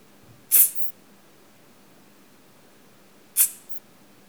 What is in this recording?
Isophya modestior, an orthopteran